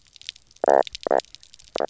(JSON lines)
{"label": "biophony, knock croak", "recorder": "SoundTrap 300"}